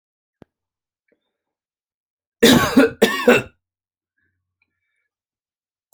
{"expert_labels": [{"quality": "good", "cough_type": "dry", "dyspnea": false, "wheezing": false, "stridor": false, "choking": false, "congestion": false, "nothing": true, "diagnosis": "upper respiratory tract infection", "severity": "mild"}], "age": 51, "gender": "male", "respiratory_condition": false, "fever_muscle_pain": false, "status": "COVID-19"}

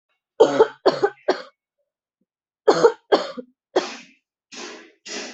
{"expert_labels": [{"quality": "ok", "cough_type": "dry", "dyspnea": false, "wheezing": false, "stridor": false, "choking": false, "congestion": false, "nothing": true, "diagnosis": "lower respiratory tract infection", "severity": "mild"}], "age": 26, "gender": "female", "respiratory_condition": true, "fever_muscle_pain": false, "status": "symptomatic"}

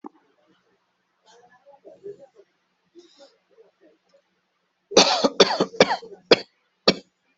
{"expert_labels": [{"quality": "ok", "cough_type": "dry", "dyspnea": false, "wheezing": false, "stridor": false, "choking": false, "congestion": false, "nothing": true, "diagnosis": "upper respiratory tract infection", "severity": "mild"}], "age": 48, "gender": "male", "respiratory_condition": false, "fever_muscle_pain": false, "status": "healthy"}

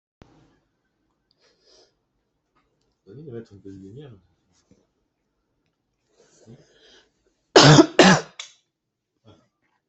{"expert_labels": [{"quality": "good", "cough_type": "dry", "dyspnea": false, "wheezing": false, "stridor": false, "choking": false, "congestion": false, "nothing": true, "diagnosis": "healthy cough", "severity": "pseudocough/healthy cough"}], "age": 32, "gender": "female", "respiratory_condition": false, "fever_muscle_pain": false, "status": "symptomatic"}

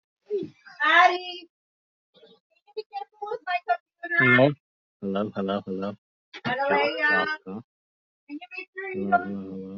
{"expert_labels": [{"quality": "no cough present", "cough_type": "unknown", "dyspnea": false, "wheezing": false, "stridor": false, "choking": false, "congestion": false, "nothing": true, "diagnosis": "healthy cough", "severity": "pseudocough/healthy cough"}]}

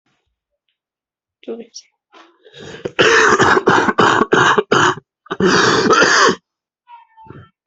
{"expert_labels": [{"quality": "good", "cough_type": "wet", "dyspnea": false, "wheezing": false, "stridor": false, "choking": false, "congestion": true, "nothing": false, "diagnosis": "lower respiratory tract infection", "severity": "severe"}], "age": 22, "gender": "male", "respiratory_condition": false, "fever_muscle_pain": false, "status": "symptomatic"}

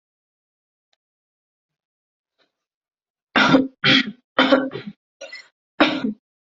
{"expert_labels": [{"quality": "good", "cough_type": "dry", "dyspnea": false, "wheezing": false, "stridor": false, "choking": false, "congestion": false, "nothing": true, "diagnosis": "upper respiratory tract infection", "severity": "mild"}], "age": 40, "gender": "female", "respiratory_condition": false, "fever_muscle_pain": false, "status": "COVID-19"}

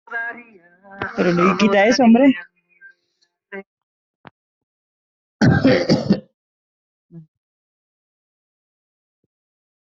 {"expert_labels": [{"quality": "poor", "cough_type": "wet", "dyspnea": false, "wheezing": false, "stridor": false, "choking": false, "congestion": false, "nothing": true, "diagnosis": "lower respiratory tract infection", "severity": "mild"}], "age": 32, "gender": "male", "respiratory_condition": false, "fever_muscle_pain": false, "status": "healthy"}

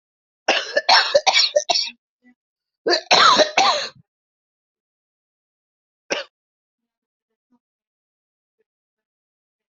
{"expert_labels": [{"quality": "ok", "cough_type": "dry", "dyspnea": false, "wheezing": false, "stridor": false, "choking": false, "congestion": false, "nothing": true, "diagnosis": "lower respiratory tract infection", "severity": "mild"}], "age": 49, "gender": "male", "respiratory_condition": false, "fever_muscle_pain": true, "status": "symptomatic"}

